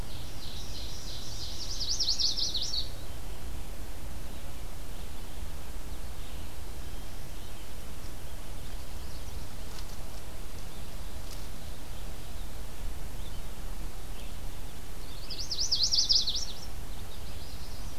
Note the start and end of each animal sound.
0.0s-1.6s: Ovenbird (Seiurus aurocapilla)
0.0s-6.5s: Red-eyed Vireo (Vireo olivaceus)
1.3s-3.3s: Chestnut-sided Warbler (Setophaga pensylvanica)
7.2s-14.5s: Red-eyed Vireo (Vireo olivaceus)
15.0s-17.4s: Chestnut-sided Warbler (Setophaga pensylvanica)
16.7s-18.0s: Magnolia Warbler (Setophaga magnolia)

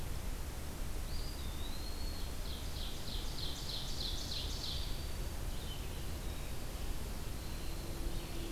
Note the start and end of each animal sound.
1.0s-2.5s: Eastern Wood-Pewee (Contopus virens)
2.2s-4.8s: Ovenbird (Seiurus aurocapilla)
4.0s-5.5s: Black-throated Green Warbler (Setophaga virens)
5.4s-8.5s: Red-eyed Vireo (Vireo olivaceus)

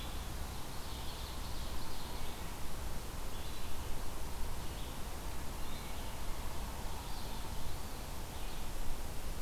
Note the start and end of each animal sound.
0.0s-9.4s: Red-eyed Vireo (Vireo olivaceus)
0.7s-2.1s: Ovenbird (Seiurus aurocapilla)

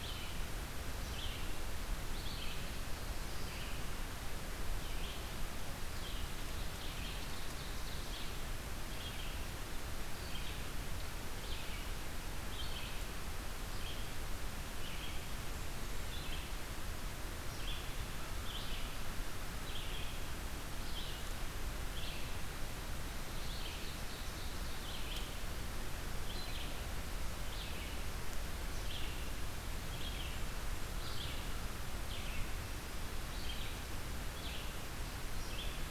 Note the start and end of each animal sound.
0.0s-35.9s: Red-eyed Vireo (Vireo olivaceus)
6.1s-8.4s: Ovenbird (Seiurus aurocapilla)
23.1s-25.0s: Ovenbird (Seiurus aurocapilla)

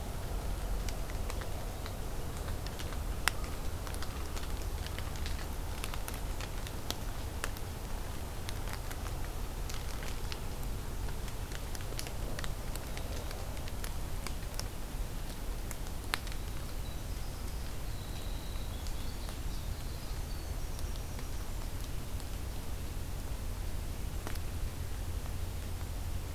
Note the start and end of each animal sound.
16.1s-21.4s: Winter Wren (Troglodytes hiemalis)

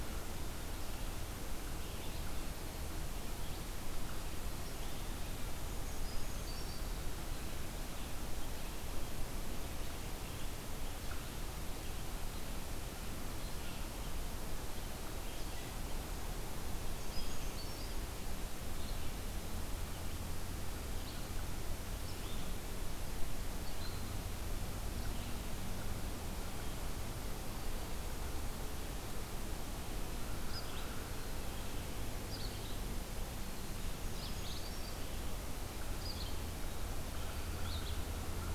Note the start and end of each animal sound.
0.0s-25.6s: Red-eyed Vireo (Vireo olivaceus)
5.4s-6.9s: Brown Creeper (Certhia americana)
16.7s-17.9s: Brown Creeper (Certhia americana)
30.3s-38.5s: Red-eyed Vireo (Vireo olivaceus)
33.8s-35.1s: Brown Creeper (Certhia americana)

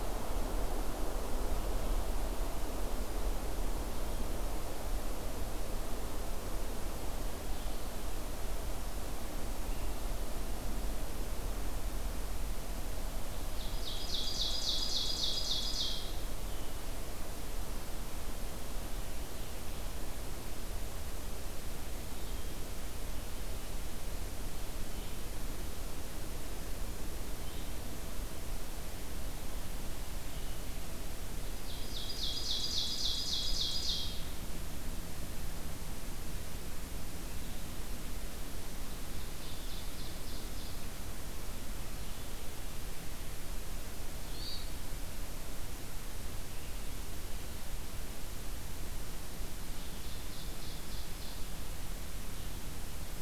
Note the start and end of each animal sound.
13.5s-16.1s: Ovenbird (Seiurus aurocapilla)
16.3s-30.6s: Blue-headed Vireo (Vireo solitarius)
31.5s-34.1s: Ovenbird (Seiurus aurocapilla)
39.1s-40.8s: Ovenbird (Seiurus aurocapilla)
44.2s-44.7s: Hermit Thrush (Catharus guttatus)
49.7s-51.5s: Ovenbird (Seiurus aurocapilla)

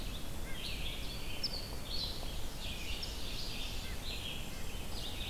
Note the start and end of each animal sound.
0.0s-5.3s: Red-breasted Nuthatch (Sitta canadensis)
0.0s-5.3s: Red-eyed Vireo (Vireo olivaceus)
1.4s-1.5s: Hairy Woodpecker (Dryobates villosus)
2.2s-4.1s: Ovenbird (Seiurus aurocapilla)
3.6s-5.1s: Golden-crowned Kinglet (Regulus satrapa)

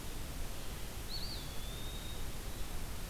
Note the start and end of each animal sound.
0.0s-3.1s: Red-eyed Vireo (Vireo olivaceus)
0.9s-2.3s: Eastern Wood-Pewee (Contopus virens)

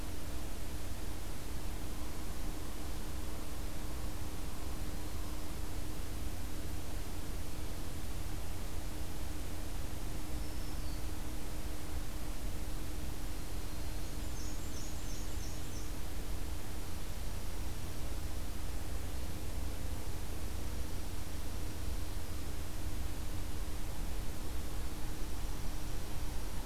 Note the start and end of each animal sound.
10.1s-11.3s: Black-throated Green Warbler (Setophaga virens)
13.1s-14.4s: Yellow-rumped Warbler (Setophaga coronata)
13.8s-16.0s: Black-and-white Warbler (Mniotilta varia)
16.6s-18.2s: Dark-eyed Junco (Junco hyemalis)
20.3s-22.1s: Dark-eyed Junco (Junco hyemalis)
24.9s-26.7s: Dark-eyed Junco (Junco hyemalis)

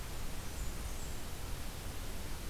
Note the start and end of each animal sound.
0.0s-1.3s: Blackburnian Warbler (Setophaga fusca)

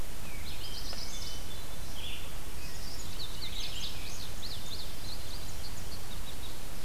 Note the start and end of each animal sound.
0.2s-6.8s: Red-eyed Vireo (Vireo olivaceus)
0.5s-1.6s: Chestnut-sided Warbler (Setophaga pensylvanica)
0.5s-2.0s: Hermit Thrush (Catharus guttatus)
3.1s-6.0s: Indigo Bunting (Passerina cyanea)
5.9s-6.7s: American Goldfinch (Spinus tristis)

